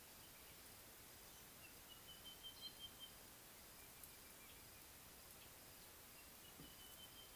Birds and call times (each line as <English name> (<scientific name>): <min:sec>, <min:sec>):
Sulphur-breasted Bushshrike (Telophorus sulfureopectus): 0:02.5